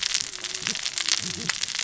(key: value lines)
label: biophony, cascading saw
recorder: SoundTrap 600 or HydroMoth